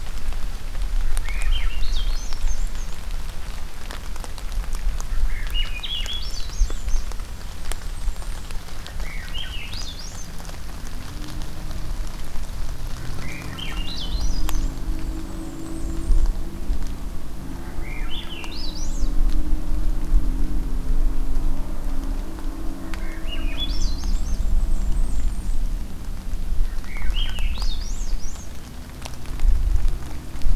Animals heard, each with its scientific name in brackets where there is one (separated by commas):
Swainson's Thrush (Catharus ustulatus), Blackburnian Warbler (Setophaga fusca)